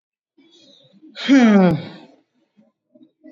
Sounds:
Sigh